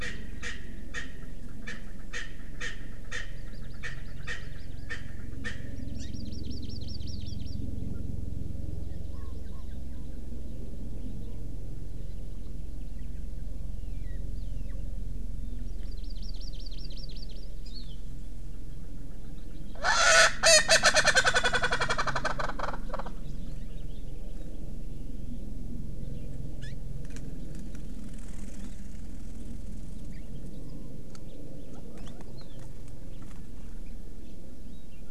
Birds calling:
Hawaii Amakihi (Chlorodrepanis virens), Erckel's Francolin (Pternistis erckelii), Warbling White-eye (Zosterops japonicus)

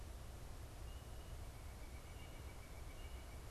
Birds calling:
White-breasted Nuthatch (Sitta carolinensis)

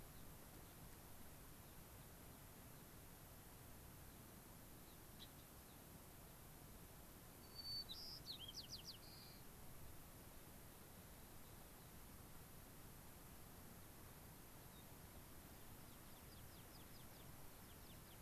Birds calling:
Gray-crowned Rosy-Finch (Leucosticte tephrocotis), White-crowned Sparrow (Zonotrichia leucophrys), American Pipit (Anthus rubescens)

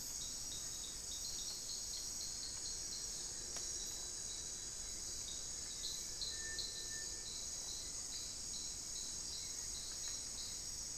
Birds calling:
Cinereous Tinamou (Crypturellus cinereus)

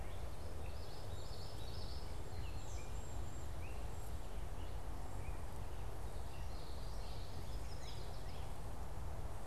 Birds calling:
Common Yellowthroat (Geothlypis trichas), Gray Catbird (Dumetella carolinensis), Cedar Waxwing (Bombycilla cedrorum), Yellow Warbler (Setophaga petechia)

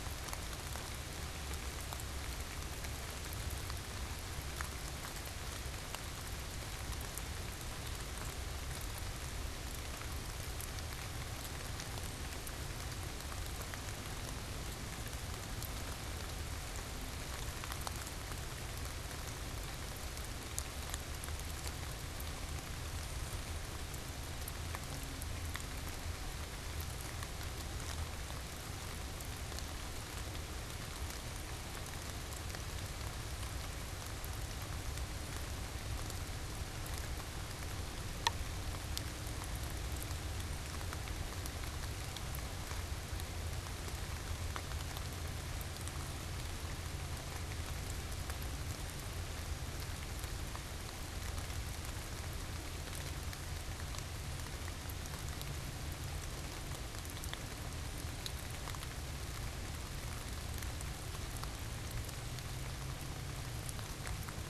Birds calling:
unidentified bird, Cedar Waxwing (Bombycilla cedrorum)

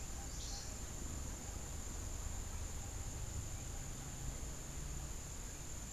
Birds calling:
Cabanis's Wren (Cantorchilus modestus)

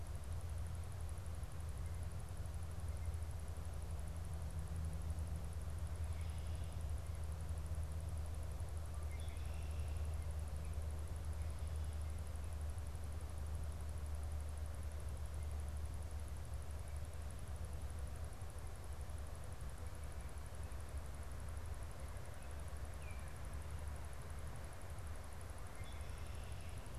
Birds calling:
Baltimore Oriole (Icterus galbula), Red-winged Blackbird (Agelaius phoeniceus)

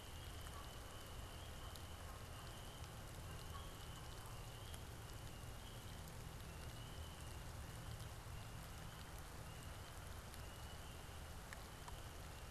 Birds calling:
Canada Goose (Branta canadensis)

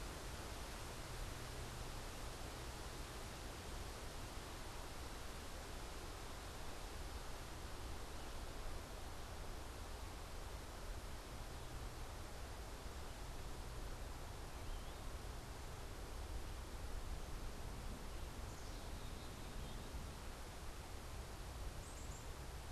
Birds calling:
Black-capped Chickadee (Poecile atricapillus), unidentified bird

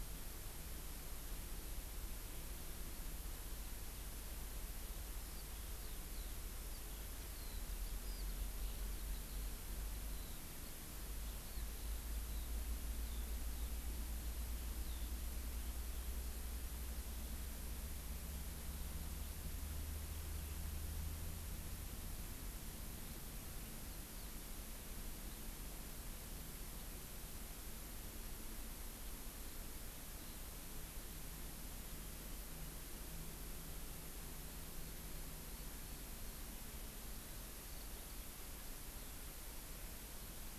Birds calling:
Eurasian Skylark (Alauda arvensis)

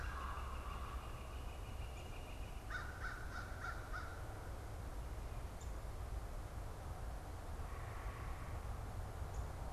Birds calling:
American Crow (Corvus brachyrhynchos), Downy Woodpecker (Dryobates pubescens), unidentified bird

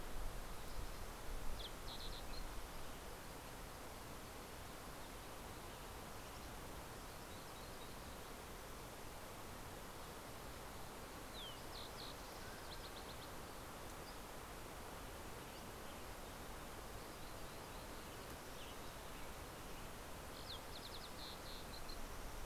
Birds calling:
Green-tailed Towhee (Pipilo chlorurus), Dusky Flycatcher (Empidonax oberholseri), Mountain Quail (Oreortyx pictus), Western Tanager (Piranga ludoviciana)

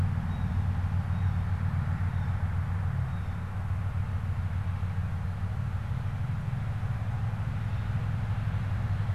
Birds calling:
Blue Jay (Cyanocitta cristata)

